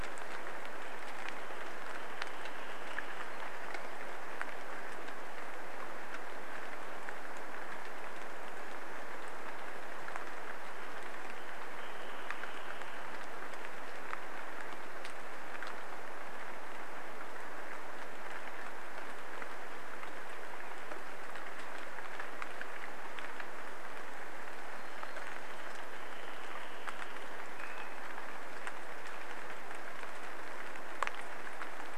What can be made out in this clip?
Wrentit song, rain, Hermit Thrush song, Brown Creeper song, warbler song, Swainson's Thrush call